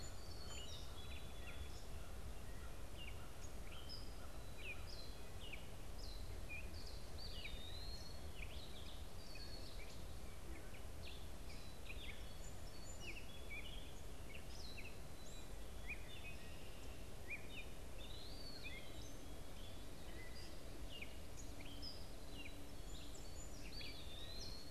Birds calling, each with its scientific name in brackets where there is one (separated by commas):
Gray Catbird (Dumetella carolinensis), Black-capped Chickadee (Poecile atricapillus), Eastern Wood-Pewee (Contopus virens), Song Sparrow (Melospiza melodia)